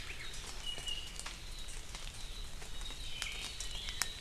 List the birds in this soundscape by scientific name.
Himatione sanguinea